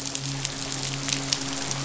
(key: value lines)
label: biophony, midshipman
recorder: SoundTrap 500